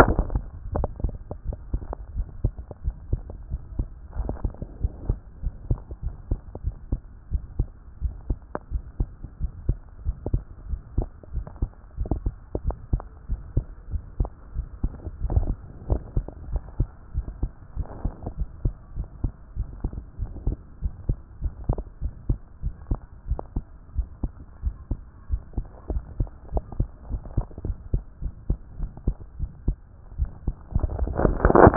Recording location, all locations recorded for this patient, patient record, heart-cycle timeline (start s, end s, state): tricuspid valve (TV)
aortic valve (AV)+pulmonary valve (PV)+tricuspid valve (TV)+mitral valve (MV)
#Age: Child
#Sex: Male
#Height: 127.0 cm
#Weight: 25.5 kg
#Pregnancy status: False
#Murmur: Absent
#Murmur locations: nan
#Most audible location: nan
#Systolic murmur timing: nan
#Systolic murmur shape: nan
#Systolic murmur grading: nan
#Systolic murmur pitch: nan
#Systolic murmur quality: nan
#Diastolic murmur timing: nan
#Diastolic murmur shape: nan
#Diastolic murmur grading: nan
#Diastolic murmur pitch: nan
#Diastolic murmur quality: nan
#Outcome: Abnormal
#Campaign: 2014 screening campaign
0.00	0.41	unannotated
0.41	0.74	diastole
0.74	0.88	S1
0.88	1.02	systole
1.02	1.14	S2
1.14	1.46	diastole
1.46	1.58	S1
1.58	1.72	systole
1.72	1.80	S2
1.80	2.14	diastole
2.14	2.26	S1
2.26	2.42	systole
2.42	2.52	S2
2.52	2.84	diastole
2.84	2.96	S1
2.96	3.10	systole
3.10	3.22	S2
3.22	3.50	diastole
3.50	3.60	S1
3.60	3.78	systole
3.78	3.86	S2
3.86	4.18	diastole
4.18	4.30	S1
4.30	4.44	systole
4.44	4.52	S2
4.52	4.82	diastole
4.82	4.92	S1
4.92	5.08	systole
5.08	5.18	S2
5.18	5.44	diastole
5.44	5.54	S1
5.54	5.68	systole
5.68	5.80	S2
5.80	6.04	diastole
6.04	6.14	S1
6.14	6.30	systole
6.30	6.40	S2
6.40	6.64	diastole
6.64	6.74	S1
6.74	6.90	systole
6.90	7.00	S2
7.00	7.32	diastole
7.32	7.42	S1
7.42	7.58	systole
7.58	7.68	S2
7.68	8.02	diastole
8.02	8.14	S1
8.14	8.28	systole
8.28	8.38	S2
8.38	8.72	diastole
8.72	8.82	S1
8.82	8.98	systole
8.98	9.08	S2
9.08	9.40	diastole
9.40	9.52	S1
9.52	9.68	systole
9.68	9.78	S2
9.78	10.06	diastole
10.06	10.16	S1
10.16	10.32	systole
10.32	10.42	S2
10.42	10.68	diastole
10.68	10.80	S1
10.80	10.96	systole
10.96	11.08	S2
11.08	11.34	diastole
11.34	11.46	S1
11.46	11.60	systole
11.60	11.70	S2
11.70	11.98	diastole
11.98	12.10	S1
12.10	12.26	systole
12.26	12.34	S2
12.34	12.64	diastole
12.64	12.76	S1
12.76	12.92	systole
12.92	13.02	S2
13.02	13.30	diastole
13.30	13.40	S1
13.40	13.56	systole
13.56	13.64	S2
13.64	13.92	diastole
13.92	14.02	S1
14.02	14.18	systole
14.18	14.30	S2
14.30	14.56	diastole
14.56	14.66	S1
14.66	14.82	systole
14.82	14.92	S2
14.92	15.24	diastole
15.24	15.34	S1
15.34	15.50	systole
15.50	15.57	S2
15.57	15.90	diastole
15.90	16.00	S1
16.00	16.16	systole
16.16	16.26	S2
16.26	16.50	diastole
16.50	16.62	S1
16.62	16.78	systole
16.78	16.88	S2
16.88	17.16	diastole
17.16	17.26	S1
17.26	17.42	systole
17.42	17.50	S2
17.50	17.76	diastole
17.76	17.88	S1
17.88	18.04	systole
18.04	18.12	S2
18.12	18.38	diastole
18.38	18.48	S1
18.48	18.64	systole
18.64	18.74	S2
18.74	18.96	diastole
18.96	19.08	S1
19.08	19.22	systole
19.22	19.32	S2
19.32	19.56	diastole
19.56	19.68	S1
19.68	19.82	systole
19.82	19.92	S2
19.92	20.20	diastole
20.20	20.30	S1
20.30	20.46	systole
20.46	20.56	S2
20.56	20.82	diastole
20.82	20.92	S1
20.92	21.08	systole
21.08	21.16	S2
21.16	21.42	diastole
21.42	21.54	S1
21.54	21.68	systole
21.68	21.80	S2
21.80	22.02	diastole
22.02	22.12	S1
22.12	22.28	systole
22.28	22.38	S2
22.38	22.64	diastole
22.64	22.74	S1
22.74	22.90	systole
22.90	23.00	S2
23.00	23.28	diastole
23.28	23.40	S1
23.40	23.54	systole
23.54	23.64	S2
23.64	23.96	diastole
23.96	24.08	S1
24.08	24.22	systole
24.22	24.32	S2
24.32	24.64	diastole
24.64	24.74	S1
24.74	24.90	systole
24.90	25.00	S2
25.00	25.30	diastole
25.30	25.42	S1
25.42	25.56	systole
25.56	25.64	S2
25.64	25.90	diastole
25.90	26.04	S1
26.04	26.18	systole
26.18	26.28	S2
26.28	26.52	diastole
26.52	26.64	S1
26.64	26.78	systole
26.78	26.88	S2
26.88	27.10	diastole
27.10	27.22	S1
27.22	27.36	systole
27.36	27.46	S2
27.46	27.66	diastole
27.66	27.76	S1
27.76	27.92	systole
27.92	28.02	S2
28.02	28.22	diastole
28.22	28.34	S1
28.34	28.48	systole
28.48	28.58	S2
28.58	28.80	diastole
28.80	28.90	S1
28.90	29.06	systole
29.06	29.16	S2
29.16	29.40	diastole
29.40	29.50	S1
29.50	29.66	systole
29.66	29.76	S2
29.76	30.18	diastole
30.18	30.30	S1
30.30	30.46	systole
30.46	30.56	S2
30.56	30.73	diastole
30.73	31.76	unannotated